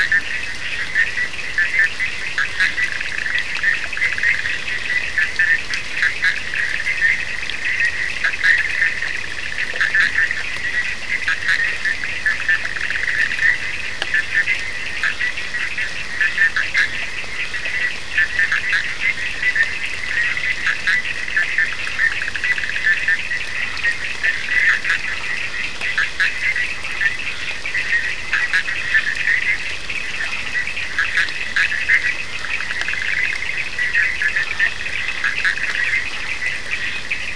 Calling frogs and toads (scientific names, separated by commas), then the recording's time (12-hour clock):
Boana bischoffi, Sphaenorhynchus surdus
2:30am